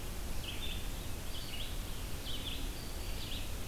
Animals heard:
Red-eyed Vireo (Vireo olivaceus), Black-throated Green Warbler (Setophaga virens)

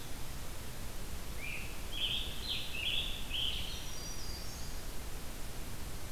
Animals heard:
Scarlet Tanager (Piranga olivacea), Black-throated Green Warbler (Setophaga virens), Hermit Thrush (Catharus guttatus)

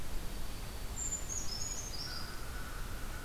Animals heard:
Dark-eyed Junco (Junco hyemalis), Brown Creeper (Certhia americana), American Crow (Corvus brachyrhynchos)

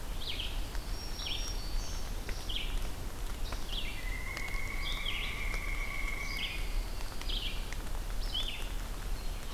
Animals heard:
Red-eyed Vireo (Vireo olivaceus), Black-throated Green Warbler (Setophaga virens), Pine Warbler (Setophaga pinus), Pileated Woodpecker (Dryocopus pileatus)

